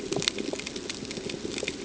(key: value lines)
label: ambient
recorder: HydroMoth